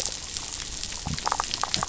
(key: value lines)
label: biophony, damselfish
recorder: SoundTrap 500